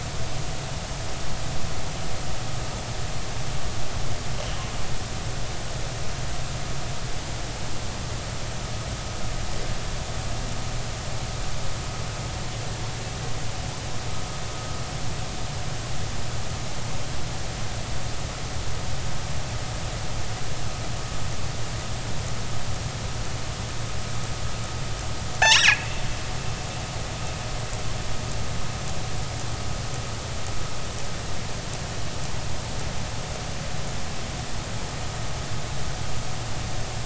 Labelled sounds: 25.4	25.9	killer whale, northern resident, G clan, call N24i, 1.3 to 5.8 kHz

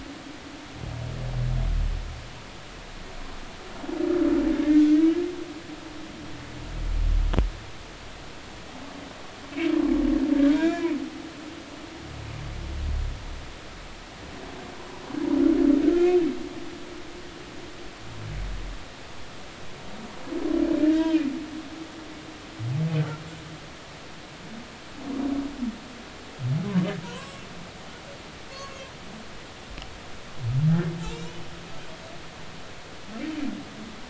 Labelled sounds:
4.5	4.9	humpback whale, 1.4 to 1.9 kHz
9.4	9.7	humpback whale, 2.2 to 2.4 kHz
10.5	11.0	humpback whale, 1.4 to 3.8 kHz
20.8	21.2	humpback whale, 1.5 to 3.3 kHz
27.0	27.5	humpback whale, 0.90 to 2.8 kHz
28.5	28.8	humpback whale, 1.0 to 1.2 kHz

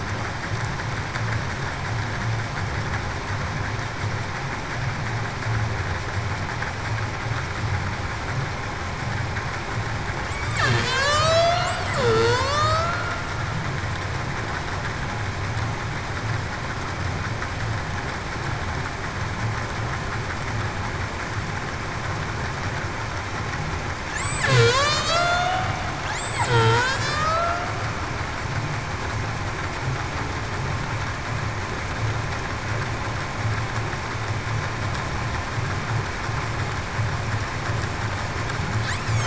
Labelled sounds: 10.7	12.9	killer whale, Bigg's (transient), 0.42 to 8.0 kHz
24.5	25.8	killer whale, Bigg's (transient), 0.42 to 6.5 kHz
26.1	26.5	killer whale, Bigg's (transient), 6.8 to 7.8 kHz
27.0	27.4	killer whale, Bigg's (transient), 2.3 to 2.7 kHz

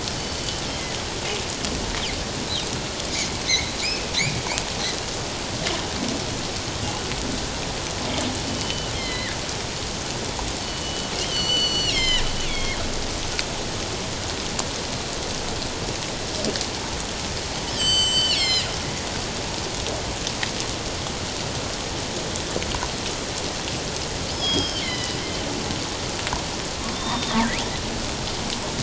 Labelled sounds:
0.2	0.6	killer whale, northern resident, G clan, 4.4 to 4.7 kHz
3.5	4.1	killer whale, northern resident, G clan, 2.2 to 4.4 kHz
8.5	9.4	killer whale, northern resident, G clan, 1.6 to 4.3 kHz
10.6	12.8	killer whale, northern resident, G clan, 1.8 to 7.5 kHz
17.7	18.7	killer whale, northern resident, G clan, 1.8 to 7.9 kHz
24.3	25.2	killer whale, northern resident, G clan, 1.9 to 5.3 kHz
26.9	27.4	killer whale, northern resident, G clan, 3.4 to 3.8 kHz

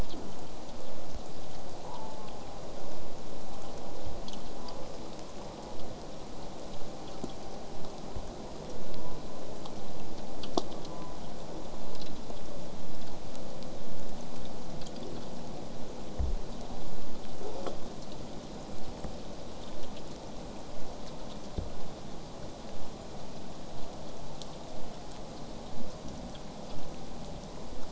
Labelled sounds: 0.1	0.5	killer whale, southern resident, J pod, 0.19 to 1.2 kHz
1.9	2.6	killer whale, southern resident, J pod, call S04, 0.62 to 1.1 kHz
3.5	3.9	killer whale, southern resident, J pod, call S04, 0.66 to 1.0 kHz
4.5	4.8	killer whale, southern resident, J pod, call S04, 0.39 to 1.1 kHz
5.4	5.8	killer whale, southern resident, J pod, call S04, 0.23 to 1.2 kHz
9.0	9.4	killer whale, southern resident, J pod, call S04, 0.35 to 1.1 kHz
10.9	11.2	killer whale, southern resident, J pod, call S04, 0.42 to 1.2 kHz
17.4	17.8	killer whale, southern resident, J pod, call S37i, 0.15 to 8.0 kHz

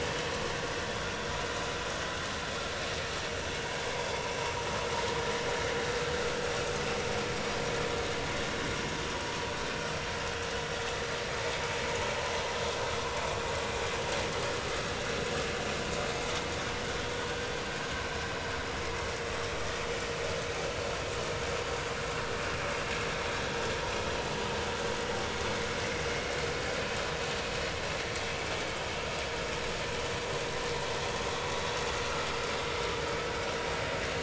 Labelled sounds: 0.9	1.1	vessel noise, 3.2 to 3.5 kHz
4.1	4.3	vessel noise, 0.86 to 1.0 kHz

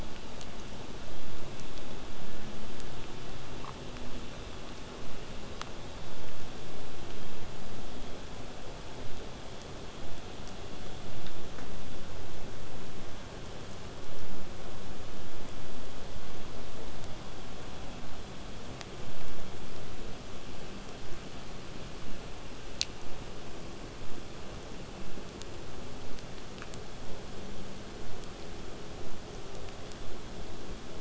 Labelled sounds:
21.0	26.0	vessel noise, 0.08 to 8.0 kHz

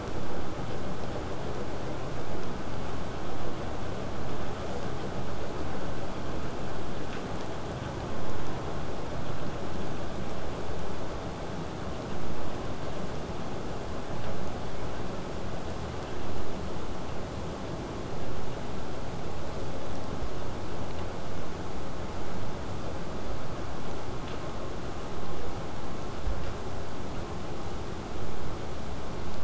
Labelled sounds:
4.6	4.9	killer whale, southern resident, buzz, 1.7 to 8.0 kHz

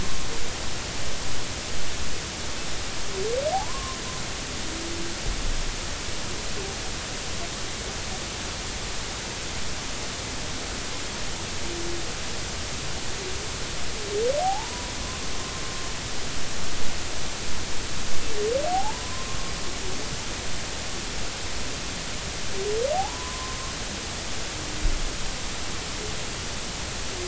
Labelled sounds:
3.5	4.0	humpback whale, 0.80 to 1.2 kHz
14.4	14.9	humpback whale, 0.80 to 1.0 kHz
18.7	19.4	humpback whale, 0.80 to 1.1 kHz
22.9	23.6	humpback whale, 0.80 to 1.1 kHz

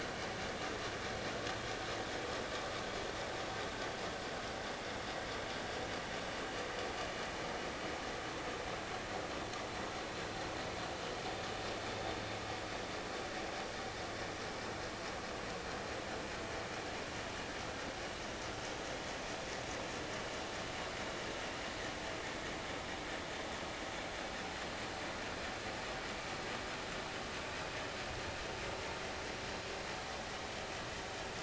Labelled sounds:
18.9	19.1	vessel noise, 3.3 to 3.4 kHz

